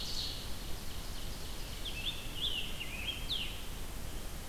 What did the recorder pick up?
Ovenbird, Scarlet Tanager